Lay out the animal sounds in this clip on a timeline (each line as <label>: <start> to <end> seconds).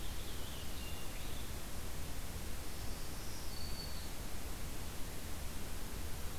Purple Finch (Haemorhous purpureus): 0.0 to 1.5 seconds
Black-throated Green Warbler (Setophaga virens): 2.4 to 4.2 seconds